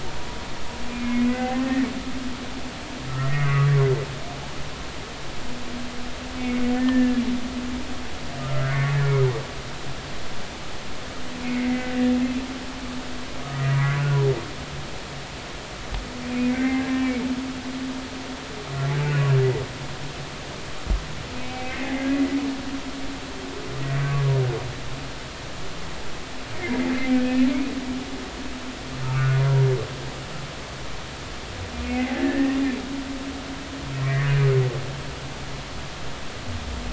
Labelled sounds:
1.0	1.9	humpback whale, 1.8 to 2.2 kHz
3.2	3.9	humpback whale, 0.93 to 2.2 kHz
6.4	7.2	humpback whale, 1.7 to 2.3 kHz
8.5	9.0	humpback whale, 1.1 to 2.2 kHz
11.4	11.9	humpback whale, 1.9 to 2.3 kHz
13.4	13.8	humpback whale, 1.1 to 2.0 kHz
16.5	16.8	humpback whale, 1.5 to 2.4 kHz
21.4	22.1	humpback whale, 1.8 to 2.4 kHz
23.8	24.1	humpback whale, 1.9 to 2.0 kHz
26.6	27.5	humpback whale, 1.7 to 2.7 kHz
29.0	29.7	humpback whale, 0.93 to 1.6 kHz
31.8	32.6	humpback whale, 1.7 to 2.6 kHz
34.0	34.3	humpback whale, 1.6 to 2.1 kHz

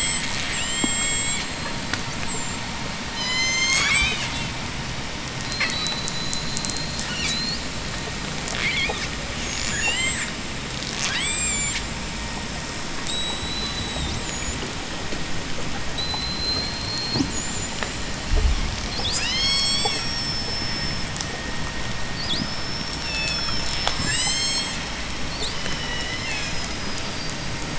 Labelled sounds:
0.4	1.6	killer whale, J pod, 1.4 to 8.0 kHz
3.0	4.5	killer whale, J pod, 0.99 to 8.0 kHz
5.5	7.7	killer whale, J pod, 1.7 to 8.0 kHz
8.3	10.4	killer whale, J pod, 0.79 to 8.0 kHz
10.9	12.0	killer whale, J pod, 0.79 to 8.0 kHz
12.9	21.0	killer whale, J pod, 0.55 to 8.0 kHz
22.1	25.0	killer whale, J pod, 1.1 to 8.0 kHz
25.5	26.9	killer whale, J pod, 1.3 to 8.0 kHz

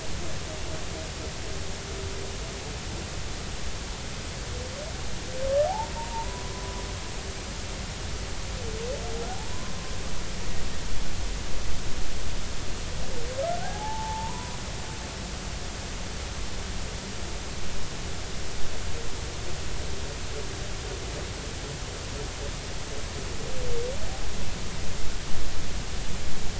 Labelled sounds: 5.7	6.8	humpback whale, 0.80 to 1.1 kHz
9.3	9.7	humpback whale, 0.80 to 1.1 kHz
13.6	14.6	humpback whale, 0.80 to 1.1 kHz

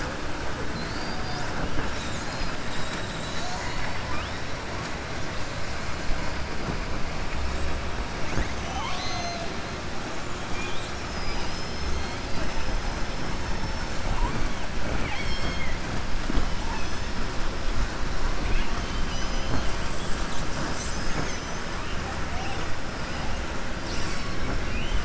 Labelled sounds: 8.5	9.4	killer whale, southern resident, 0.70 to 6.5 kHz
14.8	15.8	killer whale, southern resident, 0.42 to 5.5 kHz
24.6	25.0	killer whale, southern resident, 2.2 to 3.7 kHz

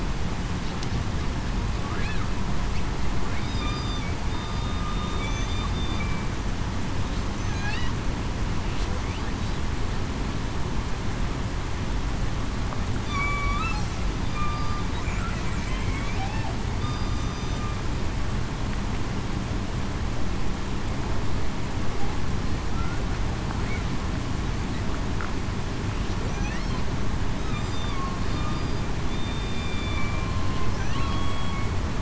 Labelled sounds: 3.5	4.0	killer whale, southern resident, 3.5 to 4.9 kHz
4.3	4.8	killer whale, southern resident, 3.6 to 3.7 kHz
5.2	5.7	killer whale, southern resident, 3.4 to 3.6 kHz
13.1	13.6	killer whale, southern resident, 2.2 to 2.4 kHz
14.3	14.8	killer whale, southern resident, 1.17 to 1.24 kHz
16.8	17.6	killer whale, southern resident, 3.6 to 3.7 kHz
27.8	28.2	killer whale, southern resident, 1.1 to 1.2 kHz
29.1	30.5	killer whale, southern resident, 1.0 to 3.6 kHz
30.9	31.3	killer whale, southern resident, 1.08 to 1.15 kHz

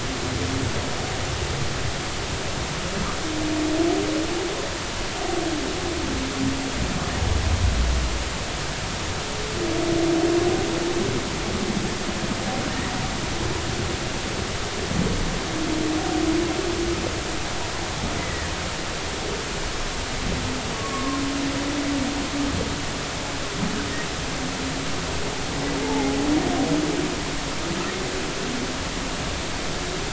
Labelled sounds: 18.2	18.5	humpback whale, 1.7 to 2.1 kHz
20.7	21.2	humpback whale, 1.0 to 1.2 kHz
25.8	26.2	humpback whale, 0.80 to 0.93 kHz

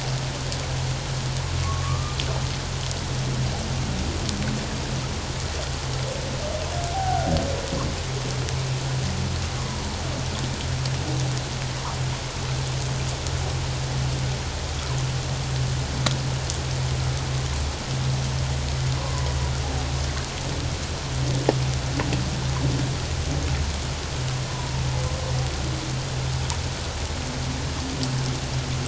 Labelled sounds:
1.6	2.2	humpback whale, 1.0 to 1.3 kHz
6.9	7.3	humpback whale, 0.78 to 1.6 kHz
19.0	19.3	humpback whale, 0.94 to 1.1 kHz
24.5	24.8	humpback whale, 0.88 to 1.1 kHz

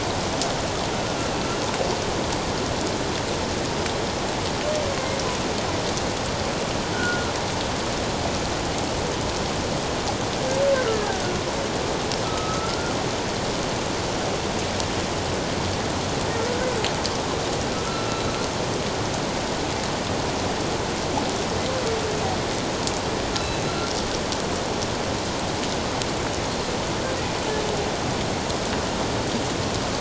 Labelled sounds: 6.9	7.3	humpback whale, 1.4 to 1.6 kHz
10.9	11.2	humpback whale, 1.5 to 1.8 kHz
12.2	12.9	humpback whale, 1.2 to 1.5 kHz
23.4	23.6	humpback whale, 3.9 to 4.1 kHz

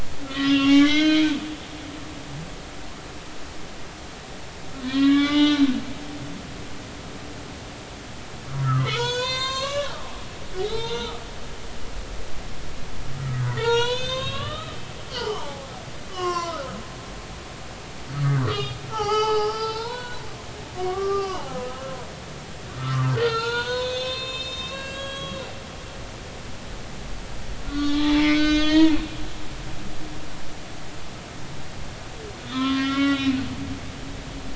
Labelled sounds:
0.3	1.2	humpback whale, 1.0 to 5.6 kHz
4.8	5.6	humpback whale, 0.99 to 5.2 kHz
8.6	9.9	humpback whale, 0.86 to 8.0 kHz
10.6	11.2	humpback whale, 0.83 to 4.2 kHz
13.2	14.8	humpback whale, 0.86 to 6.9 kHz
15.1	15.7	humpback whale, 0.80 to 3.3 kHz
16.1	16.7	humpback whale, 0.96 to 6.1 kHz
18.2	20.2	humpback whale, 0.80 to 5.9 kHz
20.7	21.5	humpback whale, 0.80 to 5.2 kHz
23.0	25.4	humpback whale, 0.86 to 7.7 kHz
27.6	28.9	humpback whale, 0.83 to 6.8 kHz
32.4	33.4	humpback whale, 0.99 to 4.0 kHz

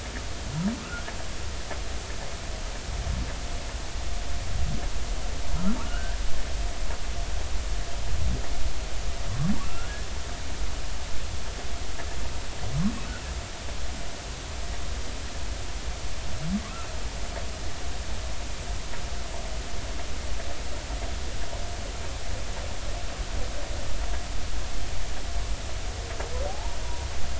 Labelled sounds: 0.8	1.1	humpback whale, 1.2 to 1.5 kHz
5.8	6.2	humpback whale, 1.1 to 1.8 kHz
9.7	9.9	humpback whale, 1.3 to 1.5 kHz
26.5	26.8	humpback whale, 0.80 to 0.99 kHz

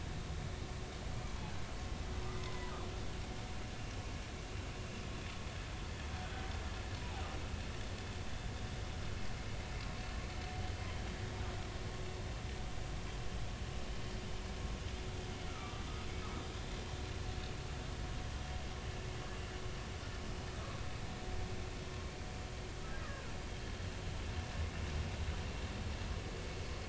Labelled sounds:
7.0	7.2	humpback whale, 0.80 to 1.0 kHz
15.5	15.8	humpback whale, 1.1 to 1.4 kHz
20.5	20.8	humpback whale, 1.0 to 1.3 kHz
23.0	23.3	humpback whale, 0.99 to 2.0 kHz

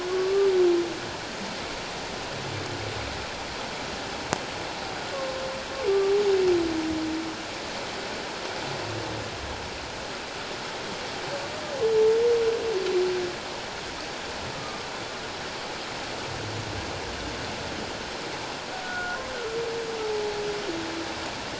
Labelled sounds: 0.1	0.5	humpback whale, 1.1 to 1.2 kHz
14.5	14.9	humpback whale, 1.2 to 1.3 kHz
18.8	19.2	humpback whale, 1.3 to 1.5 kHz

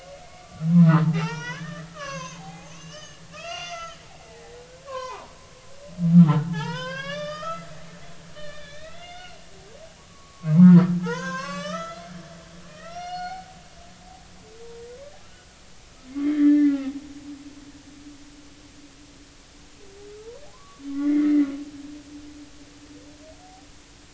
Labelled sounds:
0.8	5.3	humpback whale, 0.80 to 6.6 kHz
6.1	7.7	humpback whale, 0.80 to 6.1 kHz
8.3	12.3	humpback whale, 0.80 to 7.8 kHz
12.7	13.5	humpback whale, 0.80 to 5.9 kHz
16.1	16.9	humpback whale, 1.2 to 3.4 kHz
20.5	21.5	humpback whale, 0.96 to 2.2 kHz

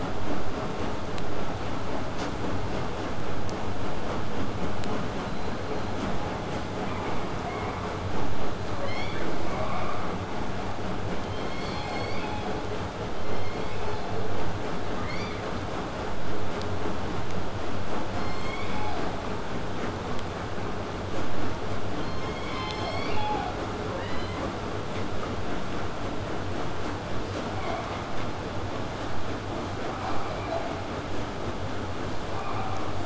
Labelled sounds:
0.1	5.1	vessel noise, 0 to 8.0 kHz
5.2	6.0	killer whale, southern resident, whistle, 3.7 to 4.4 kHz
6.8	7.9	killer whale, southern resident, 1.8 to 2.6 kHz
9.4	10.2	killer whale, southern resident, 1.6 to 3.1 kHz
11.2	12.7	killer whale, southern resident, J pod, call S01, 1.8 to 7.9 kHz
13.1	14.3	killer whale, southern resident, J pod, call S01, 1.9 to 6.4 kHz
18.2	19.1	killer whale, southern resident, J pod, call S01, 0.55 to 7.8 kHz
21.9	23.6	killer whale, southern resident, J pod, call S01, 0.49 to 8.0 kHz
27.5	28.1	killer whale, southern resident, 0.44 to 4.0 kHz
30.0	30.7	killer whale, southern resident, 0.33 to 4.3 kHz
32.3	33.0	killer whale, southern resident, 0.55 to 3.7 kHz

